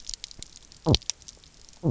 {"label": "biophony, knock croak", "recorder": "SoundTrap 300"}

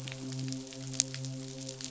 {"label": "biophony, midshipman", "recorder": "SoundTrap 500"}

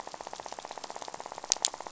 {"label": "biophony, rattle", "recorder": "SoundTrap 500"}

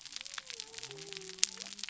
{"label": "biophony", "recorder": "SoundTrap 300"}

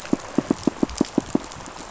{"label": "biophony, knock", "recorder": "SoundTrap 500"}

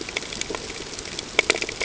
{"label": "ambient", "recorder": "HydroMoth"}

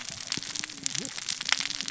{"label": "biophony, cascading saw", "recorder": "SoundTrap 600 or HydroMoth"}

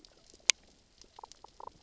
{"label": "biophony, damselfish", "recorder": "SoundTrap 600 or HydroMoth"}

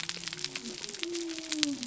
{"label": "biophony", "recorder": "SoundTrap 300"}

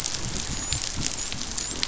{"label": "biophony, dolphin", "recorder": "SoundTrap 500"}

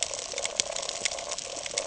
{"label": "ambient", "recorder": "HydroMoth"}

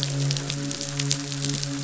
{"label": "biophony, midshipman", "recorder": "SoundTrap 500"}
{"label": "biophony, croak", "recorder": "SoundTrap 500"}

